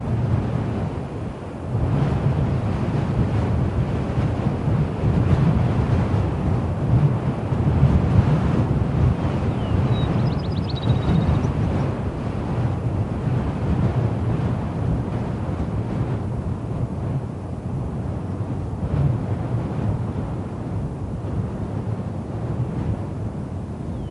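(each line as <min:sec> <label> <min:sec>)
0:09.2 Several birds chirp melodically and with high pitches above the wind noise. 0:12.2
0:23.3 Several birds chirp melodically and with high pitches above the wind noise. 0:24.1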